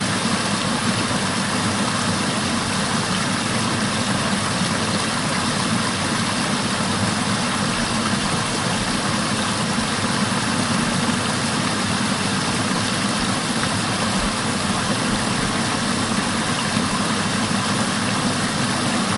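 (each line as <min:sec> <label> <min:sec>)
0:00.0 Heavy rain falls steadily on a solid surface outdoors. 0:19.2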